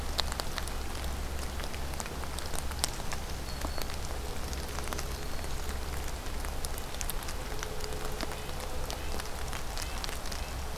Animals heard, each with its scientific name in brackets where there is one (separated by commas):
Red-breasted Nuthatch (Sitta canadensis), Black-throated Green Warbler (Setophaga virens)